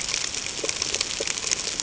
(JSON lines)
{"label": "ambient", "recorder": "HydroMoth"}